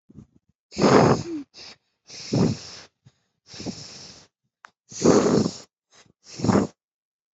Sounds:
Sigh